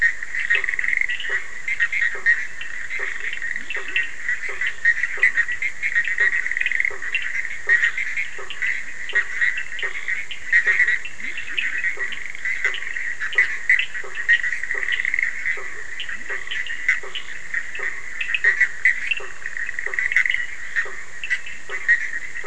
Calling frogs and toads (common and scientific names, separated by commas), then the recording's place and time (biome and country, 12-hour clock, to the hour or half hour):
Cochran's lime tree frog (Sphaenorhynchus surdus), Bischoff's tree frog (Boana bischoffi), blacksmith tree frog (Boana faber), Leptodactylus latrans
Atlantic Forest, Brazil, midnight